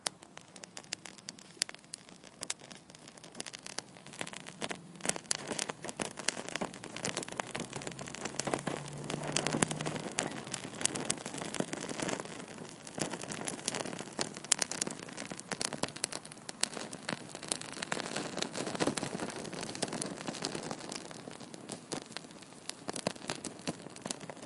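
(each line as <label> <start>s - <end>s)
A fire crackling. 0.0s - 24.5s
A siren wails in the background. 10.1s - 10.9s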